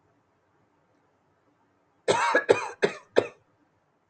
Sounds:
Cough